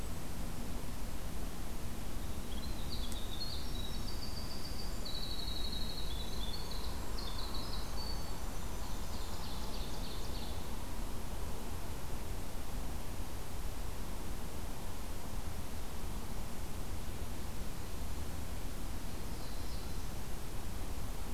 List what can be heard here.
Winter Wren, Ovenbird, Black-throated Blue Warbler